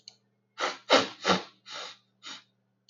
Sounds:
Sniff